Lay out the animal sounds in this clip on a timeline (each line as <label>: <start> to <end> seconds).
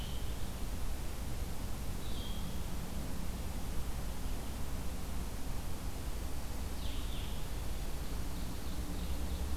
Blue-headed Vireo (Vireo solitarius): 0.0 to 2.7 seconds
Blue-headed Vireo (Vireo solitarius): 6.6 to 9.6 seconds
Ovenbird (Seiurus aurocapilla): 7.8 to 9.6 seconds